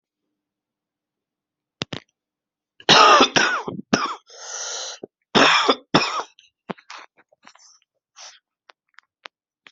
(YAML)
expert_labels:
- quality: good
  cough_type: dry
  dyspnea: false
  wheezing: false
  stridor: false
  choking: false
  congestion: true
  nothing: false
  diagnosis: upper respiratory tract infection
  severity: mild
age: 35
gender: male
respiratory_condition: false
fever_muscle_pain: false
status: symptomatic